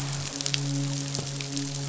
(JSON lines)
{"label": "biophony, midshipman", "recorder": "SoundTrap 500"}